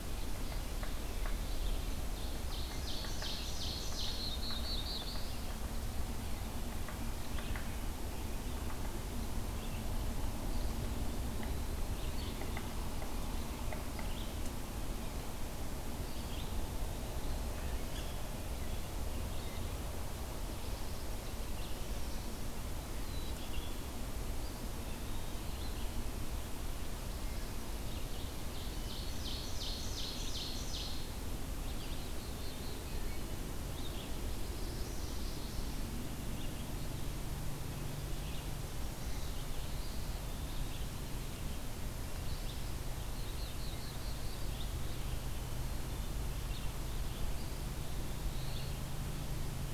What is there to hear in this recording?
Red-eyed Vireo, Ovenbird, Black-throated Blue Warbler, Eastern Wood-Pewee, Black-capped Chickadee, Mourning Warbler